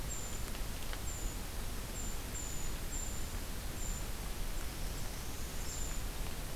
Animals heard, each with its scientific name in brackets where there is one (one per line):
Brown Creeper (Certhia americana)
Northern Parula (Setophaga americana)